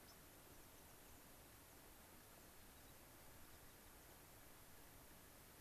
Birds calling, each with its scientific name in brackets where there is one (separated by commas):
unidentified bird, American Pipit (Anthus rubescens), White-crowned Sparrow (Zonotrichia leucophrys)